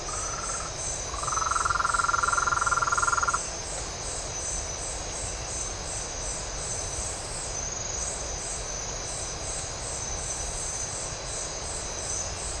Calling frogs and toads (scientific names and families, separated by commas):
Rhinella ornata (Bufonidae)